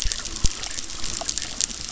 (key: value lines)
label: biophony, chorus
recorder: SoundTrap 600